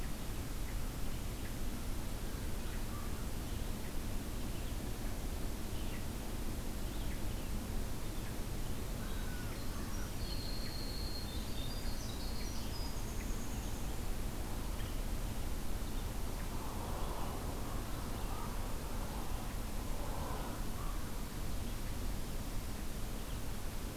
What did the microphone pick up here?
Red-eyed Vireo, American Crow, Winter Wren